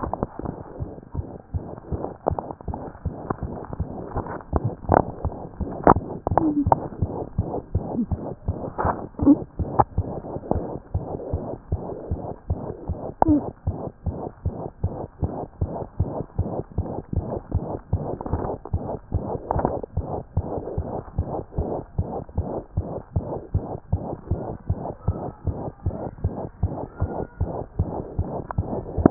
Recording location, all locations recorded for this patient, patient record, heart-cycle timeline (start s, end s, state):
mitral valve (MV)
aortic valve (AV)+mitral valve (MV)
#Age: Infant
#Sex: Female
#Height: 67.0 cm
#Weight: 5.7 kg
#Pregnancy status: False
#Murmur: Present
#Murmur locations: aortic valve (AV)+mitral valve (MV)
#Most audible location: mitral valve (MV)
#Systolic murmur timing: Holosystolic
#Systolic murmur shape: Plateau
#Systolic murmur grading: I/VI
#Systolic murmur pitch: High
#Systolic murmur quality: Harsh
#Diastolic murmur timing: nan
#Diastolic murmur shape: nan
#Diastolic murmur grading: nan
#Diastolic murmur pitch: nan
#Diastolic murmur quality: nan
#Outcome: Abnormal
#Campaign: 2014 screening campaign
0.00	14.06	unannotated
14.06	14.11	S1
14.11	14.26	systole
14.26	14.29	S2
14.29	14.45	diastole
14.45	14.51	S1
14.51	14.65	systole
14.65	14.68	S2
14.68	14.83	diastole
14.83	14.89	S1
14.89	15.04	systole
15.04	15.06	S2
15.06	15.23	diastole
15.23	15.28	S1
15.28	15.43	systole
15.43	15.45	S2
15.45	15.61	diastole
15.61	15.66	S1
15.66	15.81	systole
15.81	15.84	S2
15.84	16.00	diastole
16.00	16.05	S1
16.05	16.20	systole
16.20	16.23	S2
16.23	16.38	diastole
16.38	16.43	S1
16.43	16.58	systole
16.58	16.61	S2
16.61	16.77	diastole
16.77	16.83	S1
16.83	16.97	systole
16.97	17.00	S2
17.00	17.15	diastole
17.15	17.21	S1
17.21	17.36	systole
17.36	17.38	S2
17.38	17.55	diastole
17.55	17.60	S1
17.60	17.75	systole
17.75	17.77	S2
17.77	17.93	diastole
17.93	17.98	S1
17.98	18.13	systole
18.13	18.15	S2
18.15	18.32	diastole
18.32	18.37	S1
18.37	18.52	systole
18.52	18.55	S2
18.55	18.73	diastole
18.73	29.10	unannotated